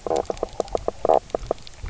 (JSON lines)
{"label": "biophony, knock croak", "recorder": "SoundTrap 300"}